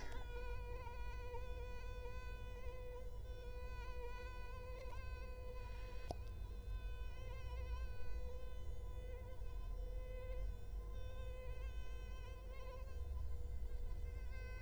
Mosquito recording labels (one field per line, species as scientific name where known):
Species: Culex quinquefasciatus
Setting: cup